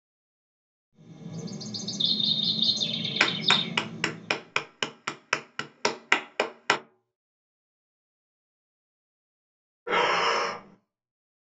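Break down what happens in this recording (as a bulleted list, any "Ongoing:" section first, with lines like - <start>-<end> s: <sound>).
- 0.93-4.55 s: bird vocalization can be heard
- 3.17-6.77 s: someone claps
- 9.86-10.76 s: you can hear breathing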